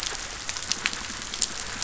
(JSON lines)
{"label": "biophony", "recorder": "SoundTrap 500"}